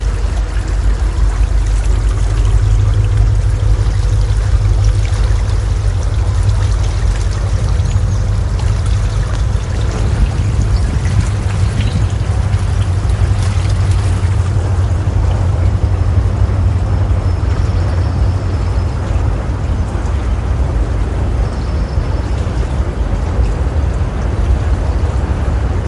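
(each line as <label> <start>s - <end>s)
A train is moving in the distance with a steady, rumbling noise. 0.0s - 25.9s
Birds chirp rhythmically with varying pitch. 0.0s - 25.9s
Flowing water creates a continuous, gentle, and natural sound. 0.0s - 25.9s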